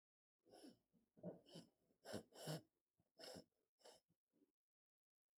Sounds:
Sniff